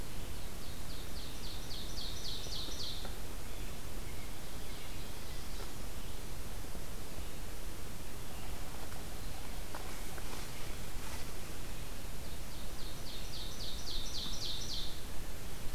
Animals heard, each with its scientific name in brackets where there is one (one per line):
American Robin (Turdus migratorius)
Ovenbird (Seiurus aurocapilla)